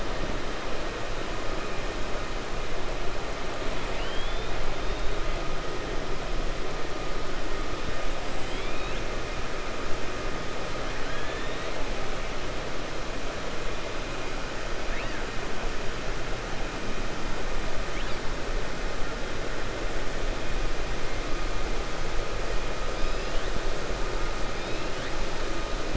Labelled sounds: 3.8	4.5	killer whale, 1.6 to 3.8 kHz
8.4	9.1	killer whale, 2.1 to 4.0 kHz

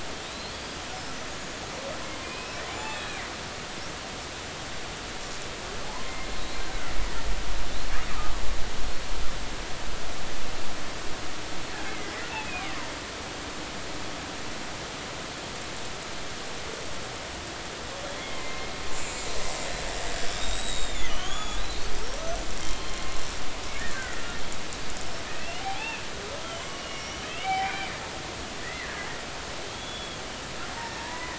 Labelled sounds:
0.2	0.8	killer whale, Bigg's (transient), 3.6 to 5.0 kHz
2.2	3.2	killer whale, Bigg's (transient), 0.80 to 4.0 kHz
5.8	6.3	killer whale, Bigg's (transient), 0.80 to 2.2 kHz
6.6	6.9	killer whale, Bigg's (transient), 1.3 to 1.6 kHz
8.1	8.4	killer whale, Bigg's (transient), 1.1 to 1.3 kHz
11.9	12.7	killer whale, Bigg's (transient), 1.9 to 2.8 kHz
18.1	19.3	killer whale, Bigg's (transient), 2.0 to 7.5 kHz
20.3	21.9	killer whale, Bigg's (transient), 1.1 to 7.0 kHz
22.6	24.2	killer whale, Bigg's (transient), 1.4 to 3.2 kHz
25.4	26.0	killer whale, Bigg's (transient), 0.80 to 3.0 kHz
26.6	27.9	killer whale, Bigg's (transient), 0.80 to 6.0 kHz
28.6	30.2	killer whale, Bigg's (transient), 1.6 to 3.5 kHz
30.8	31.3	killer whale, Bigg's (transient), 0.83 to 5.5 kHz

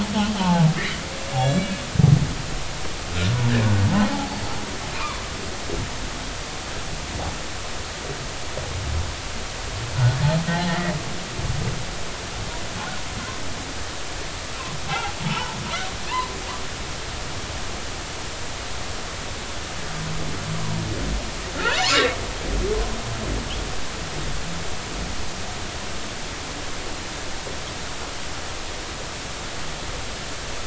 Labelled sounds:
0.4	1.0	humpback whale, 0.80 to 2.4 kHz
1.3	1.7	humpback whale, 2.8 to 7.5 kHz
5.0	5.3	humpback whale, 0.96 to 1.3 kHz
10.5	10.9	humpback whale, 0.80 to 2.0 kHz
14.9	15.6	humpback whale, 0.80 to 1.0 kHz
21.6	22.1	humpback whale, 0.80 to 3.0 kHz

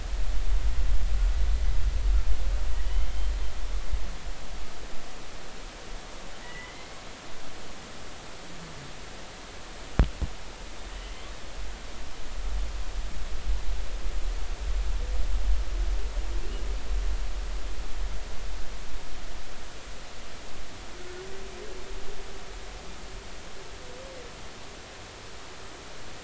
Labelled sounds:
2.8	3.1	humpback whale, 2.9 to 3.2 kHz
6.4	6.9	humpback whale, 1.8 to 2.1 kHz

